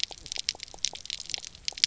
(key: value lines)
label: biophony, pulse
recorder: SoundTrap 300